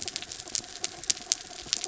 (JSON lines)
{"label": "anthrophony, mechanical", "recorder": "SoundTrap 300"}